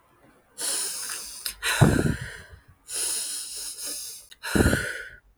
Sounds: Sigh